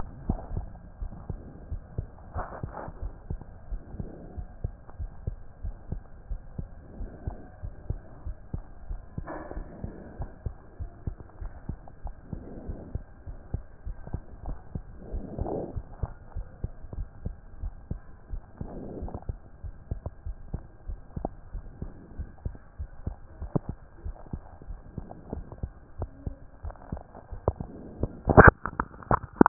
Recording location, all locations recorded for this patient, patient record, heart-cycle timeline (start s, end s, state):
aortic valve (AV)
aortic valve (AV)+pulmonary valve (PV)+tricuspid valve (TV)+mitral valve (MV)
#Age: Child
#Sex: Female
#Height: nan
#Weight: 24.2 kg
#Pregnancy status: False
#Murmur: Absent
#Murmur locations: nan
#Most audible location: nan
#Systolic murmur timing: nan
#Systolic murmur shape: nan
#Systolic murmur grading: nan
#Systolic murmur pitch: nan
#Systolic murmur quality: nan
#Diastolic murmur timing: nan
#Diastolic murmur shape: nan
#Diastolic murmur grading: nan
#Diastolic murmur pitch: nan
#Diastolic murmur quality: nan
#Outcome: Normal
#Campaign: 2014 screening campaign
0.00	0.06	S2
0.06	0.26	diastole
0.26	0.40	S1
0.40	0.52	systole
0.52	0.70	S2
0.70	1.00	diastole
1.00	1.12	S1
1.12	1.28	systole
1.28	1.42	S2
1.42	1.70	diastole
1.70	1.82	S1
1.82	1.96	systole
1.96	2.08	S2
2.08	2.34	diastole
2.34	2.46	S1
2.46	2.64	systole
2.64	2.74	S2
2.74	3.00	diastole
3.00	3.14	S1
3.14	3.32	systole
3.32	3.42	S2
3.42	3.70	diastole
3.70	3.82	S1
3.82	3.98	systole
3.98	4.10	S2
4.10	4.36	diastole
4.36	4.48	S1
4.48	4.62	systole
4.62	4.72	S2
4.72	4.98	diastole
4.98	5.10	S1
5.10	5.26	systole
5.26	5.38	S2
5.38	5.62	diastole
5.62	5.76	S1
5.76	5.90	systole
5.90	6.02	S2
6.02	6.30	diastole
6.30	6.42	S1
6.42	6.60	systole
6.60	6.70	S2
6.70	6.98	diastole
6.98	7.10	S1
7.10	7.26	systole
7.26	7.38	S2
7.38	7.64	diastole
7.64	7.74	S1
7.74	7.88	systole
7.88	8.00	S2
8.00	8.26	diastole
8.26	8.36	S1
8.36	8.54	systole
8.54	8.64	S2
8.64	8.90	diastole
8.90	9.02	S1
9.02	9.18	systole
9.18	9.30	S2
9.30	9.56	diastole
9.56	9.68	S1
9.68	9.82	systole
9.82	9.92	S2
9.92	10.18	diastole
10.18	10.30	S1
10.30	10.44	systole
10.44	10.54	S2
10.54	10.80	diastole
10.80	10.90	S1
10.90	11.06	systole
11.06	11.16	S2
11.16	11.40	diastole
11.40	11.52	S1
11.52	11.68	systole
11.68	11.78	S2
11.78	12.04	diastole
12.04	12.14	S1
12.14	12.30	systole
12.30	12.40	S2
12.40	12.66	diastole
12.66	12.76	S1
12.76	12.92	systole
12.92	13.02	S2
13.02	13.28	diastole
13.28	13.38	S1
13.38	13.52	systole
13.52	13.62	S2
13.62	13.86	diastole
13.86	13.96	S1
13.96	14.12	systole
14.12	14.22	S2
14.22	14.46	diastole
14.46	14.58	S1
14.58	14.74	systole
14.74	14.84	S2
14.84	15.12	diastole
15.12	15.24	S1
15.24	15.38	systole
15.38	15.52	S2
15.52	15.74	diastole
15.74	15.84	S1
15.84	16.00	systole
16.00	16.10	S2
16.10	16.36	diastole
16.36	16.46	S1
16.46	16.62	systole
16.62	16.72	S2
16.72	16.96	diastole
16.96	17.08	S1
17.08	17.24	systole
17.24	17.36	S2
17.36	17.62	diastole
17.62	17.74	S1
17.74	17.92	systole
17.92	18.02	S2
18.02	18.30	diastole
18.30	18.42	S1
18.42	18.60	systole
18.60	18.70	S2
18.70	18.96	diastole
18.96	19.12	S1
19.12	19.28	systole
19.28	19.38	S2
19.38	19.64	diastole
19.64	19.74	S1
19.74	19.90	systole
19.90	20.00	S2
20.00	20.26	diastole
20.26	20.36	S1
20.36	20.52	systole
20.52	20.62	S2
20.62	20.88	diastole
20.88	21.00	S1
21.00	21.18	systole
21.18	21.32	S2
21.32	21.54	diastole
21.54	21.64	S1
21.64	21.80	systole
21.80	21.90	S2
21.90	22.18	diastole
22.18	22.28	S1
22.28	22.44	systole
22.44	22.54	S2
22.54	22.80	diastole
22.80	22.90	S1
22.90	23.06	systole
23.06	23.16	S2
23.16	23.40	diastole
23.40	23.50	S1
23.50	23.66	systole
23.66	23.76	S2
23.76	24.04	diastole
24.04	24.16	S1
24.16	24.34	systole
24.34	24.42	S2
24.42	24.68	diastole
24.68	24.80	S1
24.80	24.96	systole
24.96	25.06	S2
25.06	25.32	diastole
25.32	25.44	S1
25.44	25.62	systole
25.62	25.72	S2
25.72	26.00	diastole
26.00	26.10	S1
26.10	26.26	systole
26.26	26.36	S2
26.36	26.64	diastole
26.64	26.74	S1
26.74	26.92	systole
26.92	27.02	S2
27.02	27.32	diastole
27.32	27.42	S1
27.42	27.60	systole
27.60	27.70	S2
27.70	27.98	diastole
27.98	28.12	S1
28.12	28.28	systole
28.28	28.54	S2
28.54	28.78	diastole
28.78	28.90	S1
28.90	29.10	systole
29.10	29.22	S2
29.22	29.49	diastole